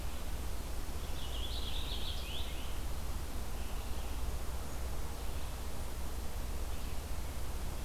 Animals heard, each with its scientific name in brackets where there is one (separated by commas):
Red-eyed Vireo (Vireo olivaceus), Purple Finch (Haemorhous purpureus)